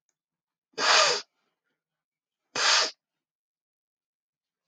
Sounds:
Sniff